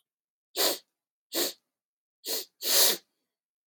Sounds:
Sniff